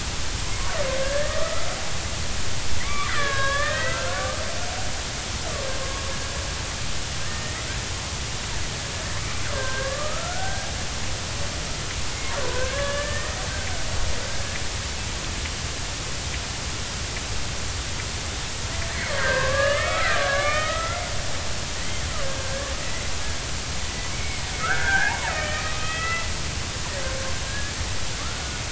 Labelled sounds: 1.0	1.7	killer whale, Bigg's (transient), 1.1 to 1.9 kHz
2.8	4.3	killer whale, Bigg's (transient), 1.0 to 3.9 kHz
5.8	6.0	killer whale, Bigg's (transient), 1.0 to 1.1 kHz
7.2	7.7	killer whale, Bigg's (transient), 1.6 to 2.2 kHz
9.5	10.7	killer whale, Bigg's (transient), 0.99 to 1.8 kHz
12.4	13.4	killer whale, Bigg's (transient), 0.96 to 2.0 kHz
18.8	22.0	killer whale, Bigg's (transient), 0.99 to 3.3 kHz
22.4	23.1	killer whale, Bigg's (transient), 1.5 to 2.1 kHz
24.1	26.3	killer whale, Bigg's (transient), 0.80 to 3.3 kHz
27.5	28.6	killer whale, Bigg's (transient), 1.1 to 1.8 kHz

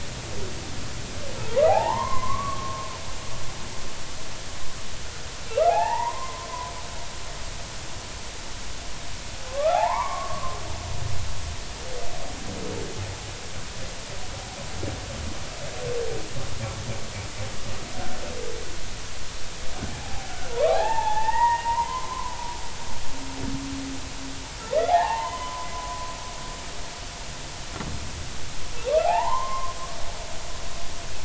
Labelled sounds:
1.7	2.9	humpback whale, 0.80 to 2.2 kHz
5.7	6.5	humpback whale, 0.80 to 2.8 kHz
9.5	10.6	humpback whale, 0.80 to 2.3 kHz
19.9	22.4	humpback whale, 0.80 to 2.8 kHz
24.9	26.1	humpback whale, 0.80 to 3.1 kHz
28.9	29.7	humpback whale, 0.80 to 3.2 kHz

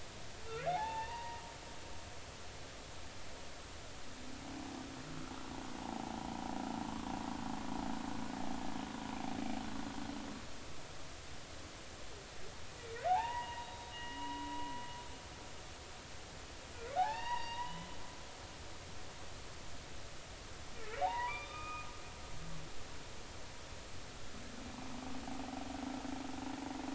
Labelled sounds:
0.6	1.4	humpback whale, 0.80 to 4.8 kHz
5.8	6.2	humpback whale, 0.80 to 1.1 kHz
13.1	14.7	humpback whale, 0.80 to 3.9 kHz
17.1	18.9	humpback whale, 0.80 to 3.9 kHz
21.0	21.9	humpback whale, 0.80 to 4.8 kHz

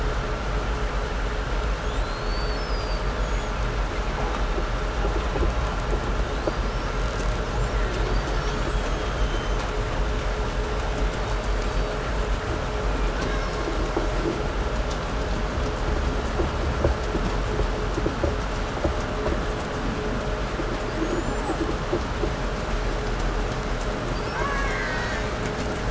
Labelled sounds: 1.3	3.7	killer whale, 2.0 to 8.0 kHz
6.0	7.4	killer whale, 1.9 to 8.0 kHz
7.7	9.9	killer whale, 1.6 to 8.0 kHz
10.8	12.1	killer whale, 1.5 to 5.2 kHz
12.9	14.4	killer whale, 0.93 to 7.2 kHz
20.7	21.9	killer whale, 4.3 to 8.0 kHz
24.0	25.6	killer whale, Bigg's (transient), call T08, 0.59 to 7.7 kHz

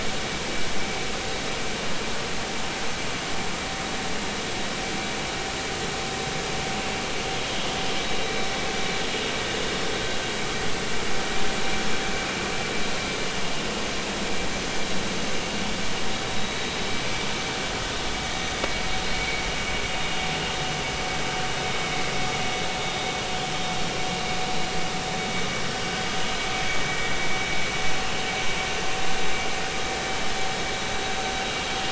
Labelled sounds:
19.1	19.4	vessel noise, 2.2 to 2.3 kHz
26.9	27.1	vessel noise, 1.8 to 2.0 kHz

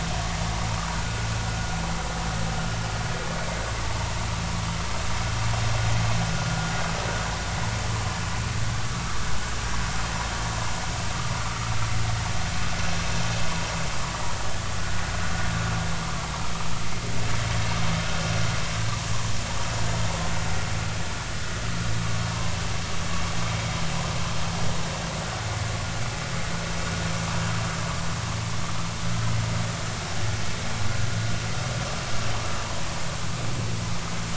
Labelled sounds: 22.3	22.6	vessel noise, 0.86 to 1.1 kHz

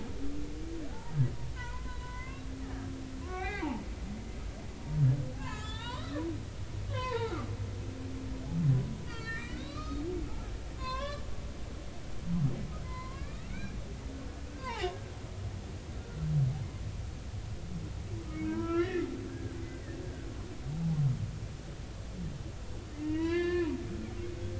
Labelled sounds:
0.9	1.1	humpback whale, 0.80 to 0.99 kHz
1.5	2.9	humpback whale, 0.90 to 2.8 kHz
3.2	3.7	humpback whale, 0.80 to 3.8 kHz
5.4	6.2	humpback whale, 0.86 to 5.3 kHz
6.9	7.5	humpback whale, 0.80 to 4.8 kHz
9.1	10.0	humpback whale, 1.1 to 4.8 kHz
10.8	11.2	humpback whale, 0.96 to 4.3 kHz
12.8	13.8	humpback whale, 0.90 to 4.2 kHz
14.5	15.9	humpback whale, 0.80 to 3.0 kHz
18.3	19.7	humpback whale, 0.93 to 3.0 kHz
22.9	23.8	humpback whale, 0.90 to 4.6 kHz

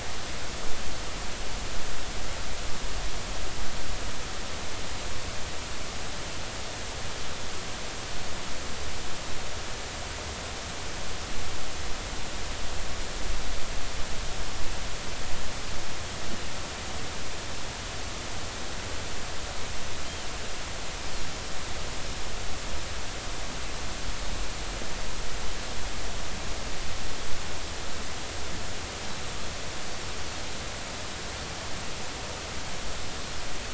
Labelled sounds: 20.0	20.3	Pacific white-sided dolphin, 2.9 to 3.3 kHz

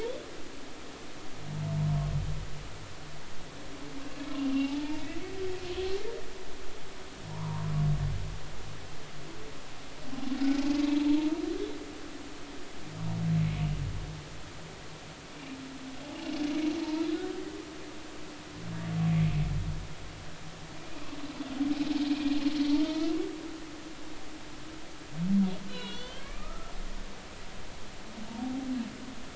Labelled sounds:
4.6	5.1	humpback whale, 0.80 to 0.96 kHz
7.3	7.6	humpback whale, 0.90 to 1.2 kHz
17.1	17.4	humpback whale, 1.4 to 1.6 kHz
22.1	23.1	humpback whale, 1.2 to 2.6 kHz
25.7	26.7	humpback whale, 1.1 to 4.7 kHz

